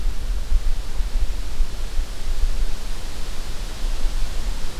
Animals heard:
forest ambience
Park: Acadia National Park